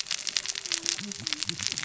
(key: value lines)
label: biophony, cascading saw
recorder: SoundTrap 600 or HydroMoth